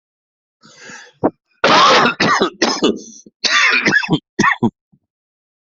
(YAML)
expert_labels:
- quality: ok
  cough_type: dry
  dyspnea: false
  wheezing: false
  stridor: false
  choking: false
  congestion: false
  nothing: true
  diagnosis: COVID-19
  severity: severe
age: 53
gender: male
respiratory_condition: false
fever_muscle_pain: false
status: symptomatic